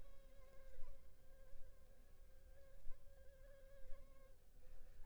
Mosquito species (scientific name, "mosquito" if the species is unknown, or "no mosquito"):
Anopheles funestus s.s.